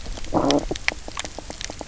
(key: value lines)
label: biophony, low growl
recorder: SoundTrap 300